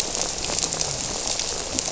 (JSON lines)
{"label": "biophony", "recorder": "SoundTrap 300"}
{"label": "biophony, grouper", "recorder": "SoundTrap 300"}